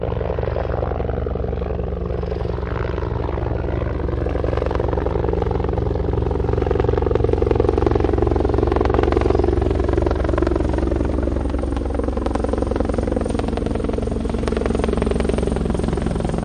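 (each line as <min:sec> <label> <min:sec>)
0:00.0 A helicopter flies overhead loudly. 0:16.4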